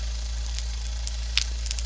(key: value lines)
label: anthrophony, boat engine
recorder: SoundTrap 300